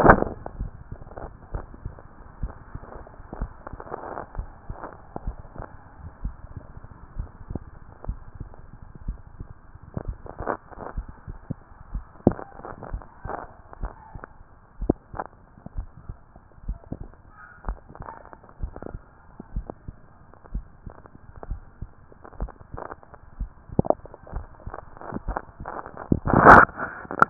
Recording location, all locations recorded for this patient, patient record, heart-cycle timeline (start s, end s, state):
mitral valve (MV)
aortic valve (AV)+pulmonary valve (PV)+tricuspid valve (TV)+mitral valve (MV)
#Age: Adolescent
#Sex: Male
#Height: 166.0 cm
#Weight: 62.7 kg
#Pregnancy status: False
#Murmur: Absent
#Murmur locations: nan
#Most audible location: nan
#Systolic murmur timing: nan
#Systolic murmur shape: nan
#Systolic murmur grading: nan
#Systolic murmur pitch: nan
#Systolic murmur quality: nan
#Diastolic murmur timing: nan
#Diastolic murmur shape: nan
#Diastolic murmur grading: nan
#Diastolic murmur pitch: nan
#Diastolic murmur quality: nan
#Outcome: Abnormal
#Campaign: 2014 screening campaign
0.00	1.54	unannotated
1.54	1.66	S1
1.66	1.84	systole
1.84	1.92	S2
1.92	2.40	diastole
2.40	2.52	S1
2.52	2.72	systole
2.72	2.82	S2
2.82	3.38	diastole
3.38	3.50	S1
3.50	3.72	systole
3.72	3.80	S2
3.80	4.36	diastole
4.36	4.48	S1
4.48	4.68	systole
4.68	4.78	S2
4.78	5.24	diastole
5.24	5.36	S1
5.36	5.58	systole
5.58	5.66	S2
5.66	6.22	diastole
6.22	6.36	S1
6.36	6.54	systole
6.54	6.64	S2
6.64	7.16	diastole
7.16	7.28	S1
7.28	7.50	systole
7.50	7.60	S2
7.60	8.06	diastole
8.06	8.18	S1
8.18	8.40	systole
8.40	8.50	S2
8.50	9.06	diastole
9.06	9.18	S1
9.18	9.40	systole
9.40	9.48	S2
9.48	10.04	diastole
10.04	27.30	unannotated